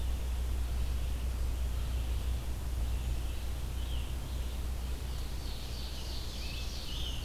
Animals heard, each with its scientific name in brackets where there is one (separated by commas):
Ovenbird (Seiurus aurocapilla), Scarlet Tanager (Piranga olivacea), Red-eyed Vireo (Vireo olivaceus), Black-throated Green Warbler (Setophaga virens)